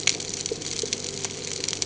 {"label": "ambient", "recorder": "HydroMoth"}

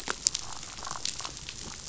{"label": "biophony, damselfish", "recorder": "SoundTrap 500"}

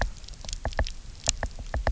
{"label": "biophony, knock", "recorder": "SoundTrap 300"}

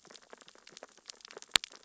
{"label": "biophony, sea urchins (Echinidae)", "recorder": "SoundTrap 600 or HydroMoth"}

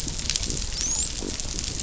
{"label": "biophony, dolphin", "recorder": "SoundTrap 500"}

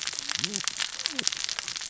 {"label": "biophony, cascading saw", "recorder": "SoundTrap 600 or HydroMoth"}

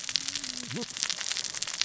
{"label": "biophony, cascading saw", "recorder": "SoundTrap 600 or HydroMoth"}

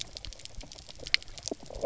{"label": "biophony, knock croak", "recorder": "SoundTrap 300"}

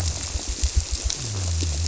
{"label": "biophony", "recorder": "SoundTrap 300"}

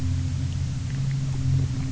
{"label": "anthrophony, boat engine", "recorder": "SoundTrap 300"}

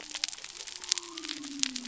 {"label": "biophony", "recorder": "SoundTrap 300"}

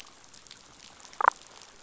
{"label": "biophony, damselfish", "recorder": "SoundTrap 500"}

